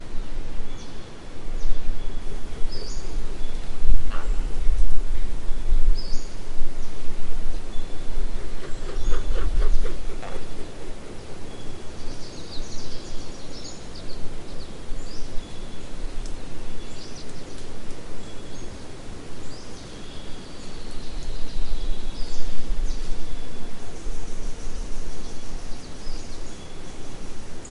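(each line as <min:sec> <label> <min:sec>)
0:00.0 Various birds are singing. 0:27.7
0:08.0 A bird flies by. 0:10.6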